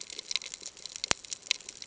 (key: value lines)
label: ambient
recorder: HydroMoth